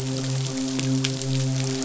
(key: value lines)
label: biophony, midshipman
recorder: SoundTrap 500